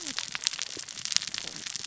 {"label": "biophony, cascading saw", "recorder": "SoundTrap 600 or HydroMoth"}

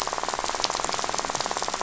{"label": "biophony, rattle", "recorder": "SoundTrap 500"}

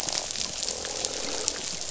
{"label": "biophony, croak", "recorder": "SoundTrap 500"}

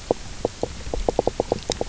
{"label": "biophony, knock croak", "recorder": "SoundTrap 300"}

